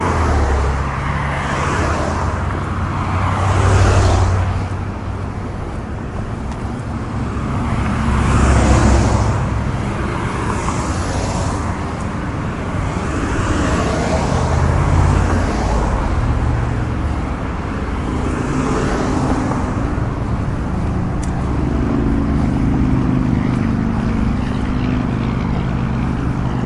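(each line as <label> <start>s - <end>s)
Cars rushing by repeatedly on a busy street. 0.0s - 5.6s
Continuous loud noise of a busy street. 5.6s - 7.8s
Cars rapidly passing by on a busy street. 7.7s - 17.0s
Continuous loud noise of a busy street. 16.9s - 18.8s
Cars rapidly passing by on a busy street. 18.6s - 20.5s
A loud motorbike engine running on the street. 20.4s - 26.7s
A quiet, brief metallic click. 21.2s - 21.6s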